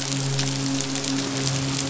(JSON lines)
{"label": "biophony, midshipman", "recorder": "SoundTrap 500"}